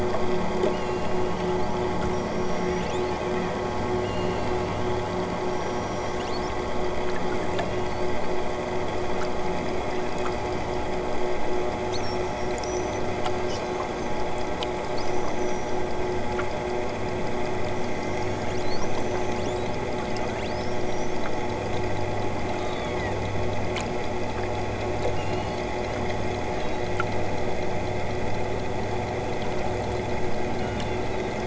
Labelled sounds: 0.7	1.6	killer whale, southern Alaska resident, 2.4 to 8.0 kHz
2.0	3.3	killer whale, southern Alaska resident, 5.0 to 8.0 kHz
4.0	4.9	killer whale, southern Alaska resident, 2.4 to 7.5 kHz
5.4	6.3	killer whale, southern Alaska resident, 5.0 to 8.0 kHz
7.3	8.2	killer whale, southern Alaska resident, 2.4 to 7.8 kHz
17.7	19.7	killer whale, southern Alaska resident, 3.6 to 8.0 kHz
20.4	21.2	killer whale, southern Alaska resident, 3.6 to 8.0 kHz
22.4	23.3	killer whale, southern Alaska resident, 3.4 to 8.0 kHz
25.1	26.0	killer whale, southern Alaska resident, 3.8 to 8.0 kHz
26.5	27.0	killer whale, southern Alaska resident, 3.8 to 6.1 kHz
30.5	31.4	killer whale, southern Alaska resident, 2.4 to 4.7 kHz

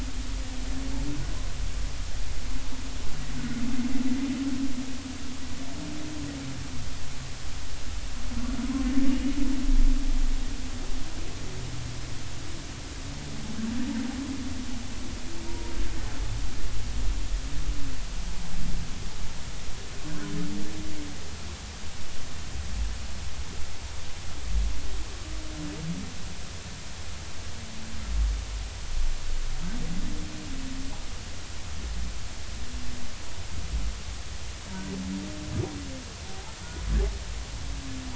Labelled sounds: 15.5	15.7	humpback whale, 0.90 to 0.99 kHz
36.3	36.5	humpback whale, 0.80 to 0.99 kHz

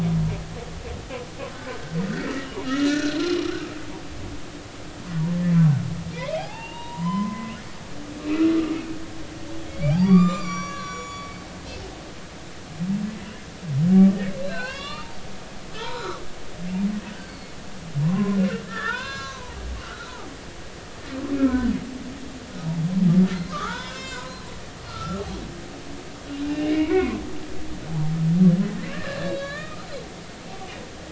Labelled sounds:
1.6	3.4	humpback whale, 1.2 to 5.4 kHz
6.2	7.5	humpback whale, 0.80 to 3.9 kHz
8.2	8.5	humpback whale, 2.5 to 2.7 kHz
9.5	11.3	humpback whale, 0.99 to 7.3 kHz
14.1	15.2	humpback whale, 0.86 to 5.8 kHz
15.7	16.2	humpback whale, 0.86 to 4.1 kHz
17.3	18.4	humpback whale, 0.93 to 4.5 kHz
18.6	19.6	humpback whale, 0.86 to 6.4 kHz
19.8	20.3	humpback whale, 0.80 to 4.0 kHz
21.3	21.7	humpback whale, 1.4 to 2.4 kHz
23.3	24.4	humpback whale, 0.80 to 7.5 kHz
24.9	25.2	humpback whale, 1.2 to 1.4 kHz
26.4	27.2	humpback whale, 0.90 to 2.9 kHz
28.9	29.9	humpback whale, 1.1 to 4.6 kHz

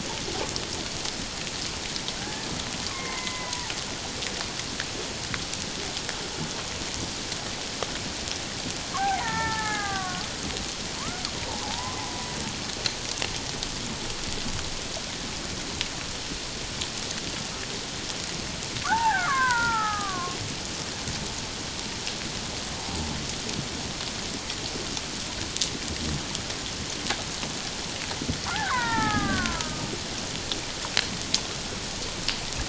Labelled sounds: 2.2	3.7	killer whale, Bigg's (transient), 0.84 to 2.2 kHz
9.0	10.2	killer whale, Bigg's (transient), 0.78 to 2.3 kHz
11.0	11.2	killer whale, Bigg's (transient), 0.91 to 1.5 kHz
11.6	12.3	killer whale, Bigg's (transient), 0.78 to 1.2 kHz
18.8	20.4	killer whale, Bigg's (transient), 0.78 to 2.1 kHz
28.5	29.9	killer whale, Bigg's (transient), 0.78 to 2.3 kHz

